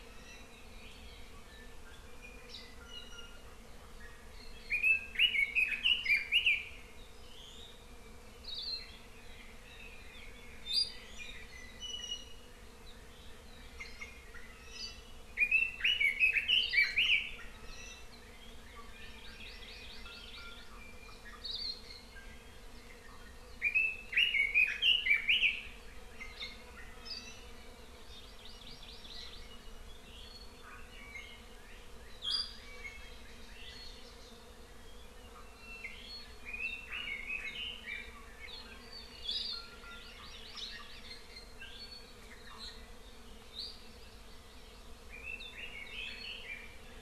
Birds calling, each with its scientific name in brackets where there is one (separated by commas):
Iiwi (Drepanis coccinea), Red-billed Leiothrix (Leiothrix lutea), Hawaii Amakihi (Chlorodrepanis virens), Hawaii Akepa (Loxops coccineus)